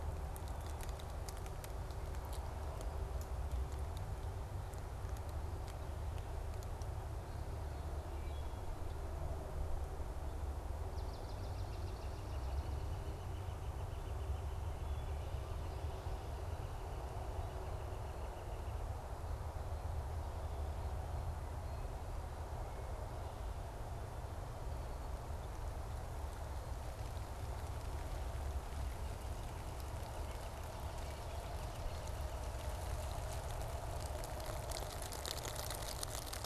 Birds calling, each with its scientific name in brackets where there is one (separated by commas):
Wood Thrush (Hylocichla mustelina), Swamp Sparrow (Melospiza georgiana), Northern Flicker (Colaptes auratus)